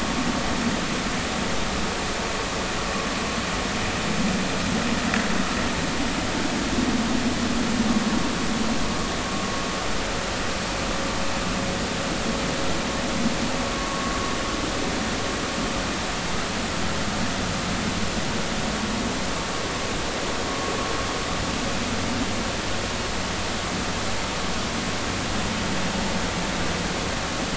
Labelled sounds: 13.7	14.0	vessel noise, 1.0 to 1.2 kHz

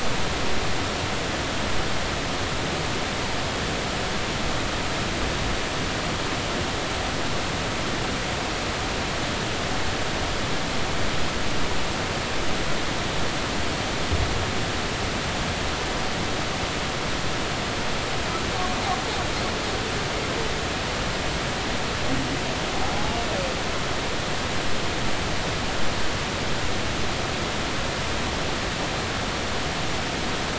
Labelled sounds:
22.9	23.2	humpback whale, 0.80 to 0.99 kHz

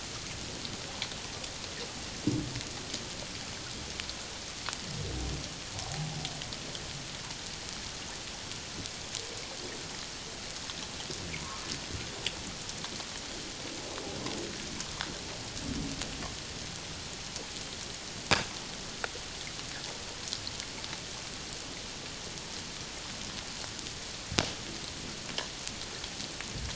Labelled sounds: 5.8	6.1	humpback whale, 0.78 to 0.88 kHz
11.4	11.6	humpback whale, 0.94 to 1.1 kHz

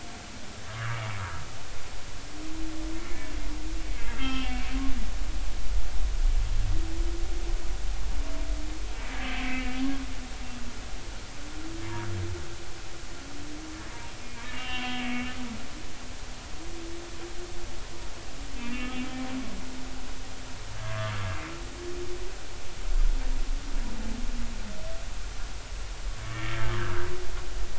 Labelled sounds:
0.7	1.1	humpback whale, 1.1 to 1.9 kHz
3.0	3.3	humpback whale, 2.0 to 2.3 kHz
3.8	4.6	humpback whale, 1.2 to 3.2 kHz
9.4	9.8	humpback whale, 2.2 to 2.9 kHz
14.4	15.0	humpback whale, 0.96 to 3.2 kHz
15.7	16.0	humpback whale, 3.2 to 3.3 kHz
18.6	18.9	humpback whale, 2.3 to 2.8 kHz
20.7	21.1	humpback whale, 1.1 to 1.7 kHz
26.2	27.1	humpback whale, 1.2 to 2.3 kHz

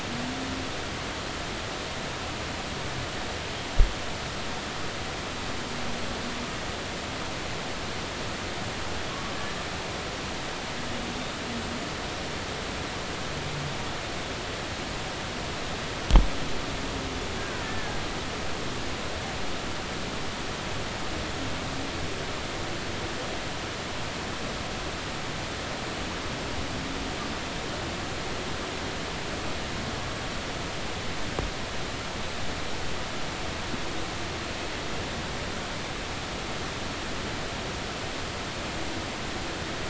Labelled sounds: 17.4	18.0	killer whale, Bigg's (transient), 1.3 to 1.8 kHz

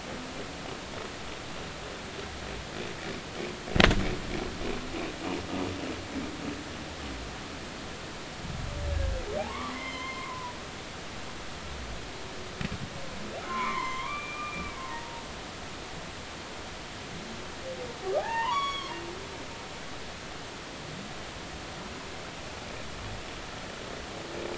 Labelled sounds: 9.4	10.6	humpback whale, 0.80 to 6.3 kHz
13.4	15.3	humpback whale, 0.86 to 2.5 kHz
18.2	19.0	humpback whale, 0.80 to 6.9 kHz

